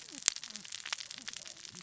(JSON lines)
{"label": "biophony, cascading saw", "recorder": "SoundTrap 600 or HydroMoth"}